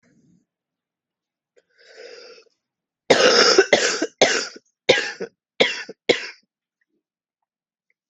{"expert_labels": [{"quality": "good", "cough_type": "wet", "dyspnea": false, "wheezing": false, "stridor": false, "choking": false, "congestion": true, "nothing": false, "diagnosis": "lower respiratory tract infection", "severity": "mild"}], "age": 33, "gender": "female", "respiratory_condition": false, "fever_muscle_pain": false, "status": "symptomatic"}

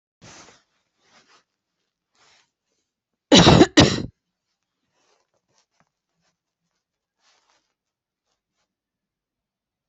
{"expert_labels": [{"quality": "good", "cough_type": "dry", "dyspnea": false, "wheezing": false, "stridor": false, "choking": false, "congestion": false, "nothing": true, "diagnosis": "healthy cough", "severity": "pseudocough/healthy cough"}], "age": 38, "gender": "female", "respiratory_condition": true, "fever_muscle_pain": false, "status": "symptomatic"}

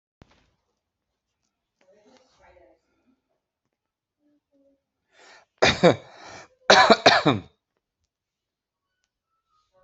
{"expert_labels": [{"quality": "good", "cough_type": "dry", "dyspnea": false, "wheezing": false, "stridor": false, "choking": false, "congestion": false, "nothing": true, "diagnosis": "healthy cough", "severity": "pseudocough/healthy cough"}], "age": 39, "gender": "male", "respiratory_condition": false, "fever_muscle_pain": true, "status": "symptomatic"}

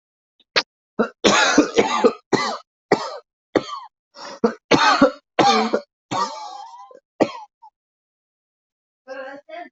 {"expert_labels": [{"quality": "good", "cough_type": "dry", "dyspnea": true, "wheezing": false, "stridor": false, "choking": false, "congestion": false, "nothing": false, "diagnosis": "lower respiratory tract infection", "severity": "severe"}], "age": 41, "gender": "male", "respiratory_condition": false, "fever_muscle_pain": false, "status": "symptomatic"}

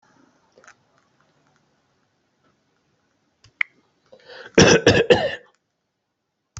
{"expert_labels": [{"quality": "good", "cough_type": "dry", "dyspnea": false, "wheezing": false, "stridor": false, "choking": false, "congestion": false, "nothing": true, "diagnosis": "COVID-19", "severity": "mild"}], "age": 51, "gender": "male", "respiratory_condition": false, "fever_muscle_pain": false, "status": "COVID-19"}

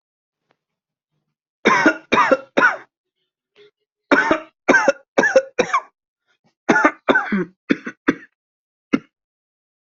{"expert_labels": [{"quality": "ok", "cough_type": "dry", "dyspnea": false, "wheezing": false, "stridor": false, "choking": false, "congestion": false, "nothing": true, "diagnosis": "COVID-19", "severity": "mild"}, {"quality": "good", "cough_type": "dry", "dyspnea": false, "wheezing": true, "stridor": false, "choking": false, "congestion": false, "nothing": false, "diagnosis": "obstructive lung disease", "severity": "mild"}, {"quality": "good", "cough_type": "dry", "dyspnea": false, "wheezing": false, "stridor": false, "choking": false, "congestion": false, "nothing": true, "diagnosis": "lower respiratory tract infection", "severity": "severe"}, {"quality": "good", "cough_type": "dry", "dyspnea": false, "wheezing": false, "stridor": false, "choking": false, "congestion": false, "nothing": true, "diagnosis": "upper respiratory tract infection", "severity": "mild"}], "age": 26, "gender": "male", "respiratory_condition": false, "fever_muscle_pain": false, "status": "symptomatic"}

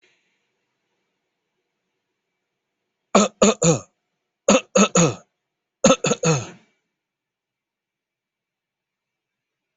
{"expert_labels": [{"quality": "good", "cough_type": "dry", "dyspnea": false, "wheezing": false, "stridor": false, "choking": false, "congestion": false, "nothing": true, "diagnosis": "healthy cough", "severity": "pseudocough/healthy cough"}], "age": 44, "gender": "male", "respiratory_condition": false, "fever_muscle_pain": false, "status": "healthy"}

